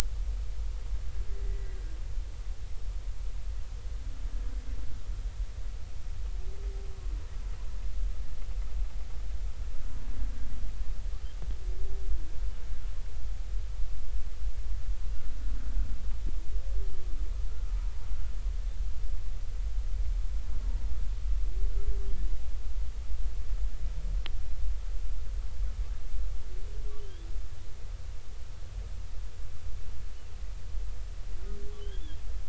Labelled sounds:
1.4	1.8	humpback whale, 1.8 to 2.0 kHz
27.0	27.3	humpback whale, 2.9 to 3.5 kHz
31.8	32.2	humpback whale, 2.9 to 3.5 kHz

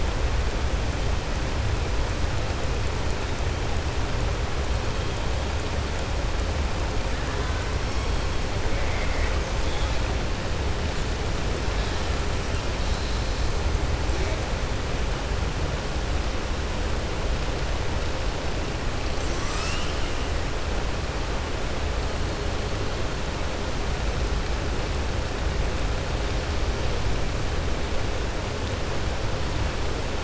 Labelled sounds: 8.7	9.4	killer whale, southern resident, 1.2 to 2.6 kHz

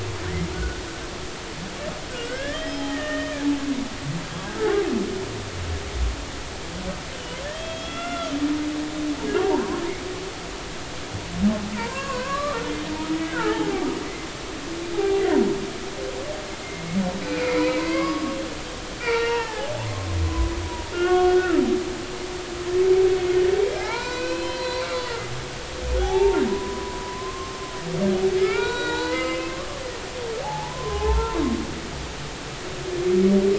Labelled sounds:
0.2	0.8	humpback whale, 1.4 to 2.2 kHz
2.1	3.5	humpback whale, 1.2 to 5.2 kHz
7.5	8.3	humpback whale, 1.2 to 3.5 kHz
9.4	9.7	humpback whale, 0.80 to 1.2 kHz
11.7	12.6	humpback whale, 0.86 to 7.1 kHz
13.1	13.8	humpback whale, 0.80 to 2.2 kHz
14.9	15.2	humpback whale, 0.80 to 0.90 kHz
17.2	18.4	humpback whale, 0.90 to 5.0 kHz
19.0	21.6	humpback whale, 0.80 to 3.4 kHz
23.8	24.9	humpback whale, 0.80 to 5.2 kHz
26.0	27.6	humpback whale, 0.80 to 3.5 kHz
28.4	29.7	humpback whale, 0.83 to 7.6 kHz
30.4	31.4	humpback whale, 0.80 to 1.1 kHz

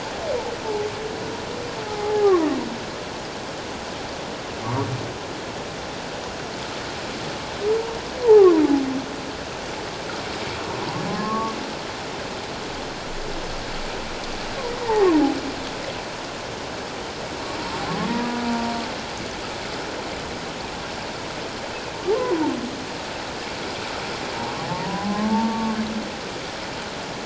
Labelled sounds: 1.8	2.5	humpback whale, 0.78 to 1.2 kHz
8.3	8.6	humpback whale, 0.94 to 1.3 kHz
11.1	11.5	humpback whale, 0.84 to 1.2 kHz
14.8	15.1	humpback whale, 0.78 to 1.9 kHz
18.1	18.4	humpback whale, 0.91 to 1.0 kHz
22.1	22.5	humpback whale, 0.78 to 1.1 kHz
24.6	25.8	humpback whale, 0.78 to 1.2 kHz

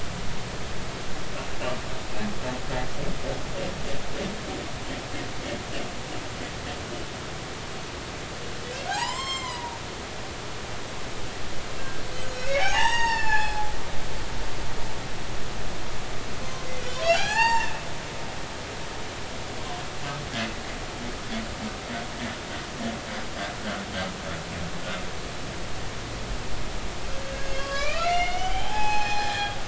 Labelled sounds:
8.9	10.6	humpback whale, 0.80 to 7.6 kHz
11.8	13.7	humpback whale, 0.80 to 7.7 kHz
17.0	17.8	humpback whale, 0.80 to 7.5 kHz
27.5	29.6	humpback whale, 0.80 to 5.4 kHz

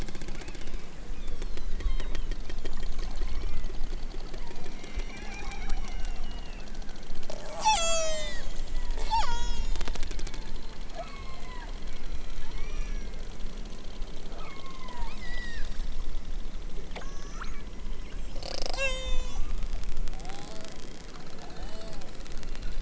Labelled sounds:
1.1	2.3	killer whale, southern Alaska resident, 0.73 to 8.0 kHz
3.1	3.7	killer whale, southern Alaska resident, 0.55 to 3.1 kHz
4.4	6.7	killer whale, southern Alaska resident, 0.55 to 6.1 kHz
7.3	8.5	killer whale, southern Alaska resident, 0.46 to 8.0 kHz
8.9	9.9	killer whale, southern Alaska resident, 0.55 to 8.0 kHz
10.9	13.2	killer whale, southern Alaska resident, 0.41 to 7.2 kHz
14.3	15.9	killer whale, southern Alaska resident, 0.69 to 8.0 kHz
16.9	19.5	killer whale, southern Alaska resident, 0.37 to 8.0 kHz

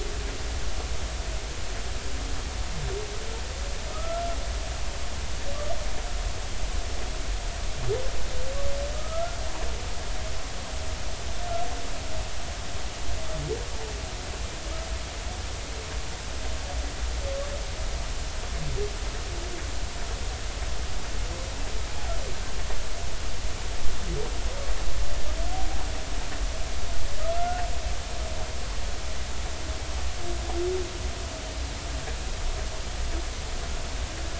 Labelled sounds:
3.9	4.2	humpback whale, 1.2 to 1.4 kHz
8.9	9.4	humpback whale, 1.2 to 1.5 kHz
25.5	25.8	humpback whale, 0.80 to 0.86 kHz
28.4	28.6	humpback whale, 1.3 to 1.5 kHz

